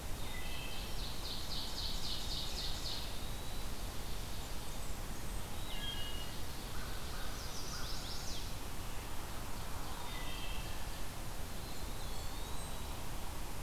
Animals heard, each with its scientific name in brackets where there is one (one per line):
Chestnut-sided Warbler (Setophaga pensylvanica)
Ovenbird (Seiurus aurocapilla)
American Crow (Corvus brachyrhynchos)
Blackburnian Warbler (Setophaga fusca)
Eastern Wood-Pewee (Contopus virens)
Wood Thrush (Hylocichla mustelina)